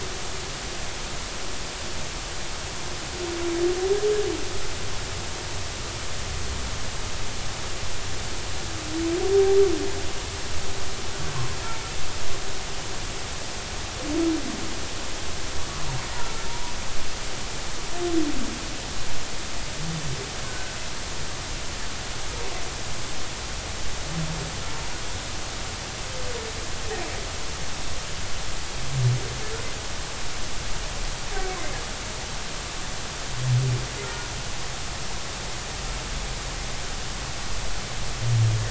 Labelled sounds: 15.6	15.9	humpback whale, 0.96 to 1.2 kHz
16.5	16.7	humpback whale, 0.90 to 1.0 kHz

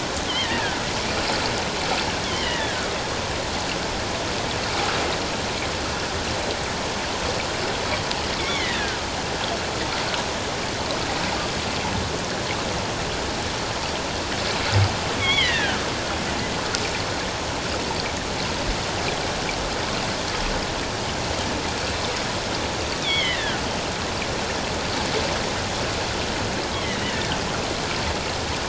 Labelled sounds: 0.3	0.8	killer whale, offshore, 1.4 to 2.2 kHz
2.2	2.9	killer whale, offshore, 1.2 to 3.5 kHz
8.4	9.0	killer whale, offshore, 1.4 to 2.3 kHz
15.2	15.8	killer whale, offshore, 1.2 to 3.5 kHz
23.0	23.6	killer whale, offshore, 1.4 to 3.7 kHz
26.7	27.2	killer whale, offshore, 1.8 to 3.2 kHz

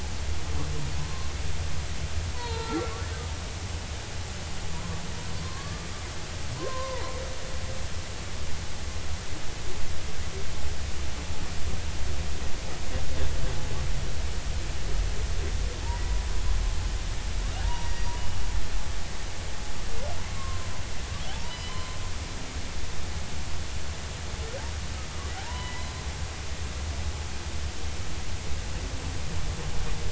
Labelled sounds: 2.3	2.9	humpback whale, 0.86 to 4.5 kHz
5.4	5.9	humpback whale, 0.99 to 1.8 kHz
6.6	7.2	humpback whale, 0.90 to 1.1 kHz
17.6	18.1	humpback whale, 0.86 to 5.8 kHz
20.4	20.7	humpback whale, 0.99 to 1.1 kHz
21.3	22.0	humpback whale, 0.80 to 3.1 kHz
25.4	25.9	humpback whale, 0.80 to 2.1 kHz

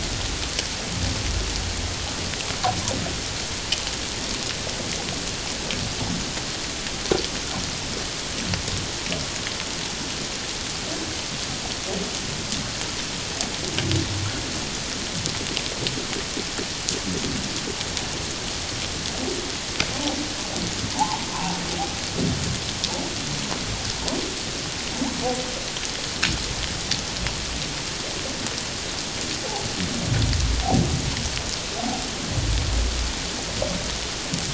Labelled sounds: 20.9	21.6	humpback whale, 0.78 to 1.1 kHz

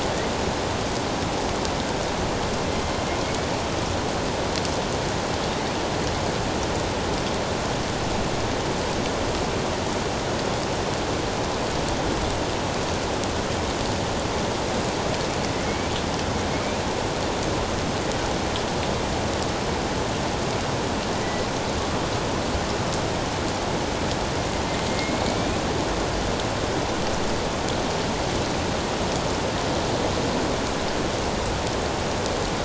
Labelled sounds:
3.2	3.5	killer whale, northern resident, A clan, AA subclan, A04 pod, 2.2 to 2.3 kHz
21.2	21.5	killer whale, northern resident, A clan, AA subclan, A04 pod, 1.9 to 2.0 kHz
24.9	25.6	killer whale, northern resident, A clan, AA subclan, A04 pod, 2.1 to 2.6 kHz

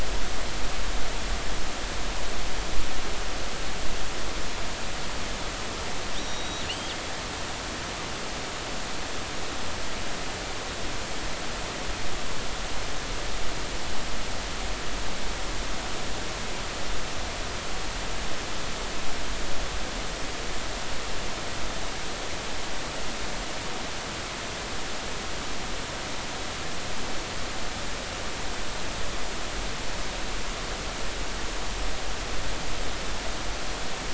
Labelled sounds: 6.2	7.0	killer whale, northern resident, G clan, call N23i, 2.6 to 5.9 kHz

